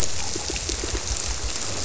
{"label": "biophony, squirrelfish (Holocentrus)", "recorder": "SoundTrap 300"}
{"label": "biophony", "recorder": "SoundTrap 300"}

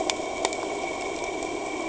{"label": "anthrophony, boat engine", "recorder": "HydroMoth"}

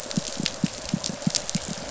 {"label": "biophony, pulse", "recorder": "SoundTrap 500"}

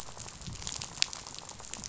{"label": "biophony, rattle", "recorder": "SoundTrap 500"}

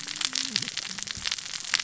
{"label": "biophony, cascading saw", "recorder": "SoundTrap 600 or HydroMoth"}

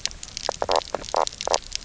{"label": "biophony, knock croak", "recorder": "SoundTrap 300"}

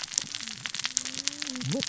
{"label": "biophony, cascading saw", "recorder": "SoundTrap 600 or HydroMoth"}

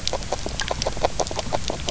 {"label": "biophony, grazing", "recorder": "SoundTrap 300"}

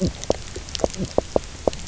{"label": "biophony, knock croak", "recorder": "SoundTrap 300"}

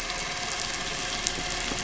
{"label": "anthrophony, boat engine", "recorder": "SoundTrap 500"}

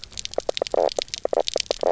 {"label": "biophony, knock croak", "recorder": "SoundTrap 300"}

